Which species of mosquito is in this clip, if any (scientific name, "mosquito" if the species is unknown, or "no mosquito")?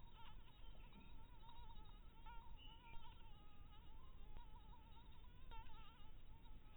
mosquito